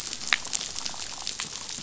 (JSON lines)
{"label": "biophony, damselfish", "recorder": "SoundTrap 500"}